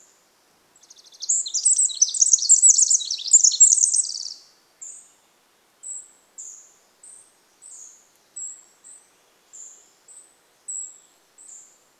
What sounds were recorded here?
Pacific Wren song, Cedar Waxwing call, Swainson's Thrush song